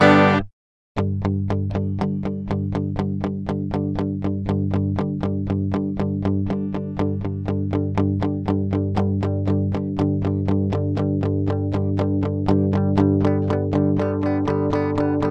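An electric guitar plays a single chord. 0.0 - 0.5
An electric guitar plays a repeated chugging pattern with gradually increasing volume. 0.9 - 15.3

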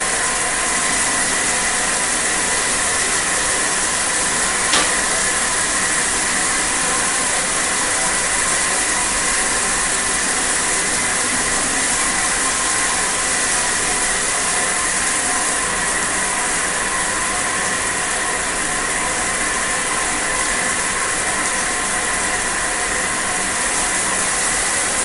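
Water sprays forcefully, making a loud, steady impact sound. 0.0 - 25.0
An object is hit with a short impact sound. 4.6 - 5.2

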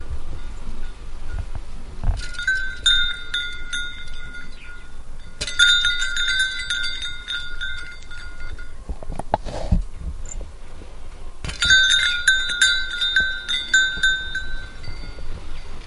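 Bells chime mildly. 1.8 - 4.3
Bells chime and tinkle loudly. 5.3 - 8.4
Bells clunk and chime loudly. 11.3 - 14.8

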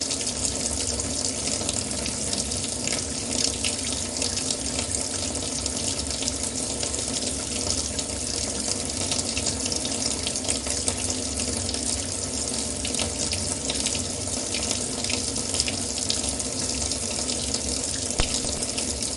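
Water flows into a metallic kitchen sink. 0.0 - 19.2

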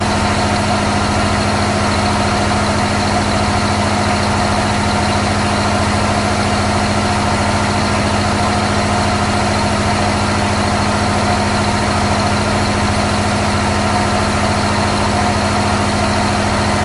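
Constant loud high and low pitch sounds of a boat engine. 0.0 - 16.8

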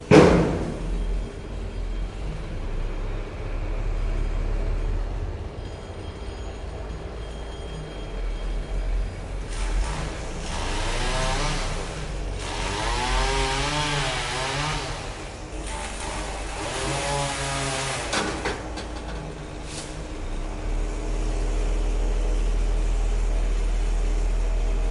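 A door is slammed loudly. 0.0 - 0.9
A chainsaw is running loudly. 9.9 - 19.2

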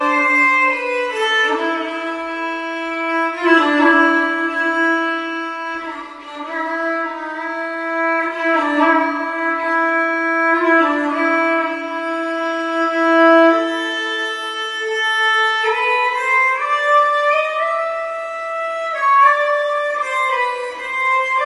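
Sad violin music plays. 0.0 - 21.4

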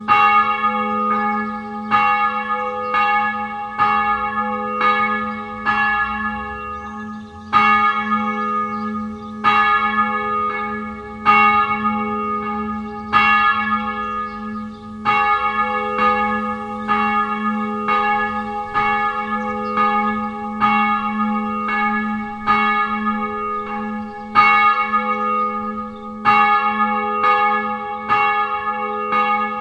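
A bell rings. 0.0 - 29.6
A ding sounds. 0.0 - 29.6

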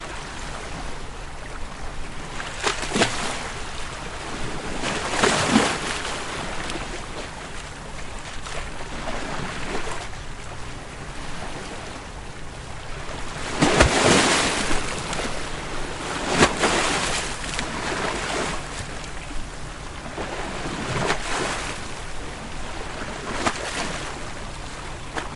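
Water flowing. 0.0 - 25.4
Waves splashing mildly. 2.5 - 3.8
Waves splashing mildly. 4.8 - 6.2
Waves splash loudly. 13.1 - 15.0
Waves splash loudly. 15.9 - 17.4
Waves splashing mildly. 20.8 - 21.9
Waves splashing mildly. 23.1 - 24.0

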